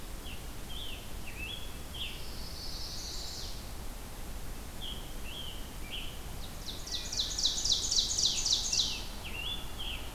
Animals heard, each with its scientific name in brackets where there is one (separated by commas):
Scarlet Tanager (Piranga olivacea), Wood Thrush (Hylocichla mustelina), Chestnut-sided Warbler (Setophaga pensylvanica), Ovenbird (Seiurus aurocapilla)